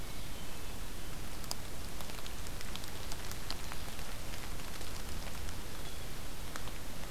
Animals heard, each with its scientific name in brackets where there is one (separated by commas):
Hermit Thrush (Catharus guttatus)